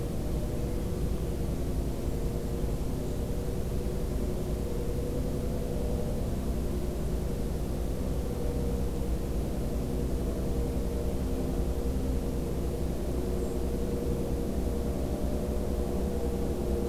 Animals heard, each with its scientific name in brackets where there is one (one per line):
Golden-crowned Kinglet (Regulus satrapa)
White-throated Sparrow (Zonotrichia albicollis)